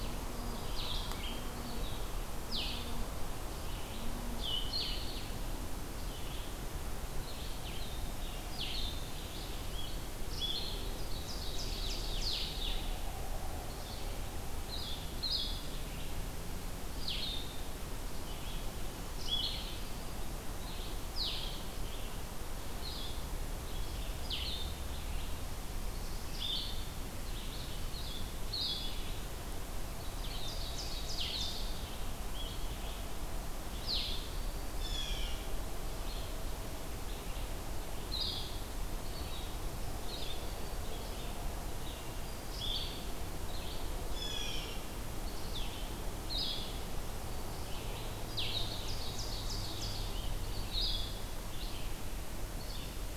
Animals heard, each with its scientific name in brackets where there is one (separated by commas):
Ovenbird (Seiurus aurocapilla), Red-eyed Vireo (Vireo olivaceus), Blue Jay (Cyanocitta cristata), Blue-headed Vireo (Vireo solitarius)